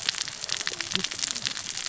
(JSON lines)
{"label": "biophony, cascading saw", "recorder": "SoundTrap 600 or HydroMoth"}